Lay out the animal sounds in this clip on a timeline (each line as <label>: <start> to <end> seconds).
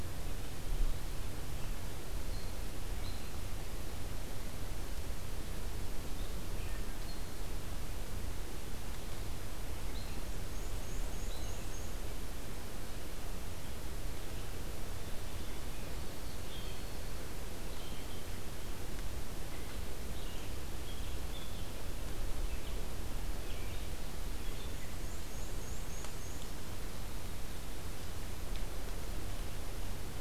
Red-eyed Vireo (Vireo olivaceus): 0.0 to 3.4 seconds
Red-eyed Vireo (Vireo olivaceus): 6.0 to 7.4 seconds
Red-eyed Vireo (Vireo olivaceus): 9.9 to 11.8 seconds
Black-and-white Warbler (Mniotilta varia): 10.4 to 12.0 seconds
White-throated Sparrow (Zonotrichia albicollis): 14.9 to 17.4 seconds
Red-eyed Vireo (Vireo olivaceus): 16.3 to 24.8 seconds
Black-and-white Warbler (Mniotilta varia): 24.6 to 26.5 seconds